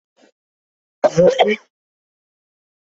{"expert_labels": [{"quality": "good", "cough_type": "dry", "dyspnea": false, "wheezing": false, "stridor": false, "choking": false, "congestion": false, "nothing": true, "diagnosis": "lower respiratory tract infection", "severity": "mild"}], "age": 56, "gender": "female", "respiratory_condition": false, "fever_muscle_pain": false, "status": "symptomatic"}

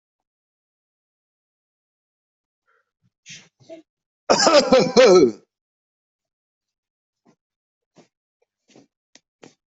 {"expert_labels": [{"quality": "good", "cough_type": "dry", "dyspnea": false, "wheezing": false, "stridor": false, "choking": false, "congestion": false, "nothing": true, "diagnosis": "healthy cough", "severity": "pseudocough/healthy cough"}], "age": 25, "gender": "male", "respiratory_condition": false, "fever_muscle_pain": false, "status": "COVID-19"}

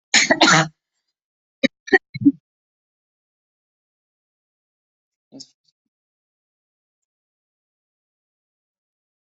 {"expert_labels": [{"quality": "ok", "cough_type": "dry", "dyspnea": false, "wheezing": false, "stridor": false, "choking": false, "congestion": false, "nothing": true, "diagnosis": "upper respiratory tract infection", "severity": "unknown"}]}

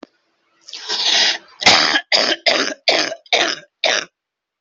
{"expert_labels": [{"quality": "ok", "cough_type": "wet", "dyspnea": false, "wheezing": false, "stridor": false, "choking": false, "congestion": false, "nothing": true, "diagnosis": "COVID-19", "severity": "severe"}], "age": 35, "gender": "female", "respiratory_condition": false, "fever_muscle_pain": false, "status": "symptomatic"}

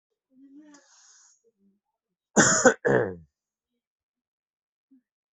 {"expert_labels": [{"quality": "good", "cough_type": "dry", "dyspnea": false, "wheezing": false, "stridor": false, "choking": false, "congestion": false, "nothing": true, "diagnosis": "healthy cough", "severity": "pseudocough/healthy cough"}]}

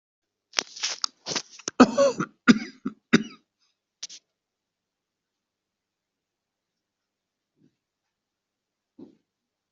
{"expert_labels": [{"quality": "good", "cough_type": "dry", "dyspnea": false, "wheezing": false, "stridor": false, "choking": false, "congestion": false, "nothing": true, "diagnosis": "upper respiratory tract infection", "severity": "mild"}], "age": 40, "gender": "female", "respiratory_condition": false, "fever_muscle_pain": false, "status": "COVID-19"}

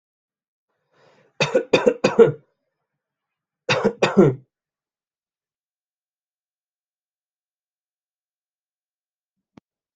{"expert_labels": [{"quality": "good", "cough_type": "dry", "dyspnea": false, "wheezing": false, "stridor": false, "choking": false, "congestion": false, "nothing": true, "diagnosis": "COVID-19", "severity": "mild"}], "age": 32, "gender": "male", "respiratory_condition": false, "fever_muscle_pain": false, "status": "symptomatic"}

